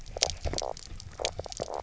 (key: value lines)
label: biophony, knock croak
recorder: SoundTrap 300